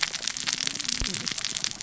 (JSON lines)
{"label": "biophony, cascading saw", "recorder": "SoundTrap 600 or HydroMoth"}